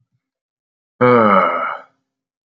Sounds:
Sigh